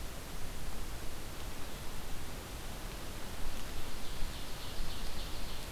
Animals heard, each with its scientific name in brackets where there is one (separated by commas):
Ovenbird (Seiurus aurocapilla)